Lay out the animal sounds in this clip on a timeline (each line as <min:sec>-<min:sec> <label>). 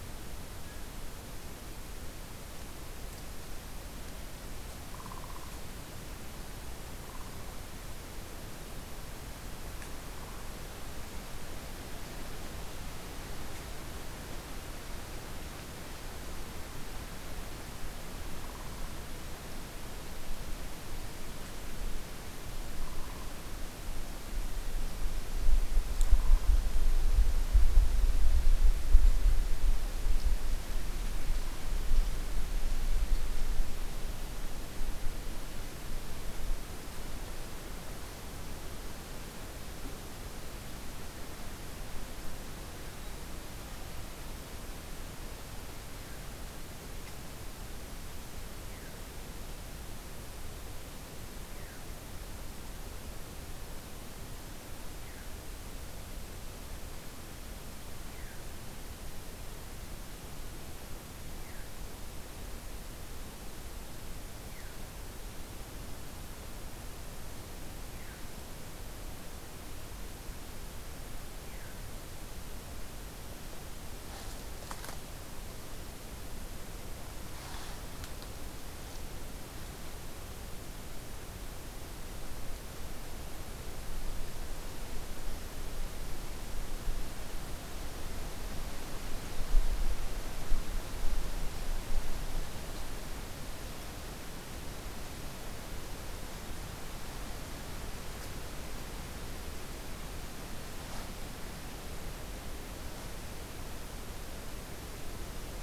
0:48.6-0:49.0 Hermit Thrush (Catharus guttatus)
0:51.5-0:51.8 Hermit Thrush (Catharus guttatus)
0:54.9-0:55.3 Hermit Thrush (Catharus guttatus)
0:58.0-0:58.4 Hermit Thrush (Catharus guttatus)
1:01.1-1:01.8 Hermit Thrush (Catharus guttatus)
1:04.3-1:04.8 Hermit Thrush (Catharus guttatus)
1:07.8-1:08.3 Hermit Thrush (Catharus guttatus)
1:11.4-1:11.8 Hermit Thrush (Catharus guttatus)